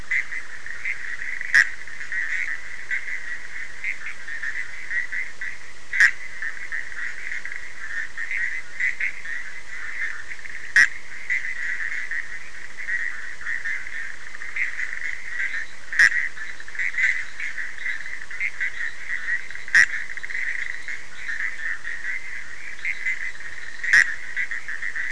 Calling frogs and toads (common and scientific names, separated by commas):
Bischoff's tree frog (Boana bischoffi)